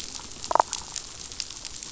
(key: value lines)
label: biophony, damselfish
recorder: SoundTrap 500